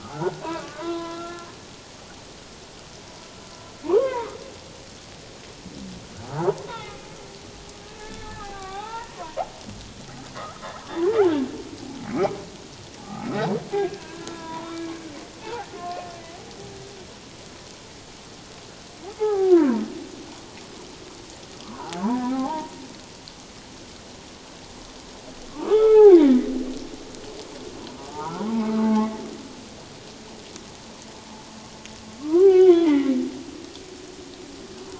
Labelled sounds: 0.0	1.5	humpback whale, 0.94 to 4.1 kHz
3.9	4.3	humpback whale, 0.78 to 2.2 kHz
6.3	7.0	humpback whale, 0.78 to 2.4 kHz
8.0	9.4	humpback whale, 0.78 to 2.0 kHz
10.4	10.6	humpback whale, 1.0 to 1.4 kHz
12.0	13.4	humpback whale, 0.78 to 2.4 kHz
13.7	14.8	humpback whale, 0.88 to 3.7 kHz
15.4	16.0	humpback whale, 0.78 to 1.1 kHz
19.2	19.7	humpback whale, 0.78 to 1.8 kHz
21.7	22.7	humpback whale, 0.78 to 1.6 kHz
25.5	26.5	humpback whale, 0.78 to 2.1 kHz
28.0	29.1	humpback whale, 0.81 to 1.5 kHz
32.2	33.1	humpback whale, 0.78 to 2.4 kHz

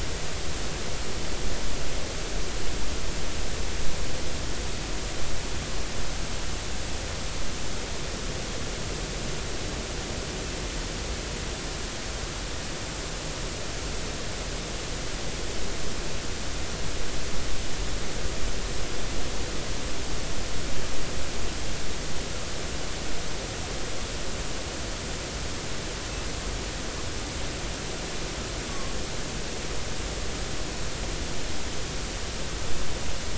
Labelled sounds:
28.7	28.9	humpback whale, 0.99 to 1.2 kHz

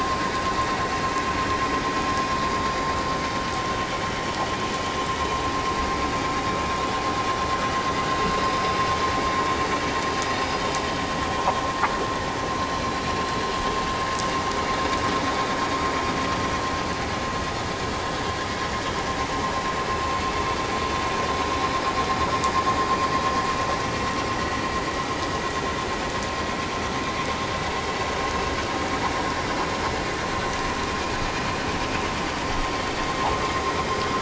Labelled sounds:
10.4	10.7	vessel noise, 4.8 to 5.0 kHz
14.7	15.0	vessel noise, 3.6 to 3.8 kHz
22.2	22.5	vessel noise, 3.6 to 3.8 kHz

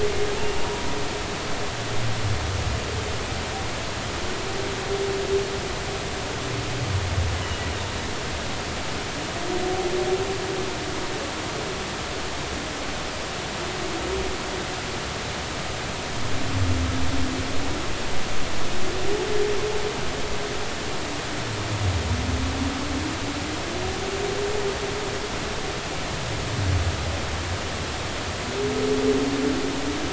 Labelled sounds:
0.6	0.9	humpback whale, 0.93 to 0.99 kHz
7.4	7.7	humpback whale, 2.8 to 3.0 kHz

